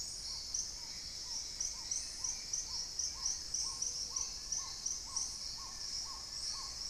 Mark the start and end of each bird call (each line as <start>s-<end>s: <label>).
0.0s-6.9s: Black-tailed Trogon (Trogon melanurus)
0.0s-6.9s: Hauxwell's Thrush (Turdus hauxwelli)
0.5s-3.6s: Plain-winged Antshrike (Thamnophilus schistaceus)
2.8s-6.9s: Long-billed Woodcreeper (Nasica longirostris)
3.5s-4.6s: Gray-fronted Dove (Leptotila rufaxilla)